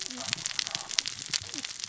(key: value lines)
label: biophony, cascading saw
recorder: SoundTrap 600 or HydroMoth